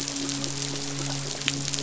{"label": "biophony, midshipman", "recorder": "SoundTrap 500"}
{"label": "biophony", "recorder": "SoundTrap 500"}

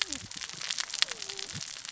{"label": "biophony, cascading saw", "recorder": "SoundTrap 600 or HydroMoth"}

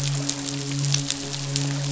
{"label": "biophony, midshipman", "recorder": "SoundTrap 500"}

